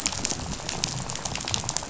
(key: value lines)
label: biophony, rattle
recorder: SoundTrap 500